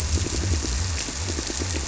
{"label": "biophony", "recorder": "SoundTrap 300"}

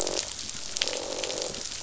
{"label": "biophony, croak", "recorder": "SoundTrap 500"}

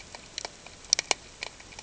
{"label": "ambient", "recorder": "HydroMoth"}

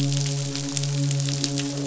{"label": "biophony, midshipman", "recorder": "SoundTrap 500"}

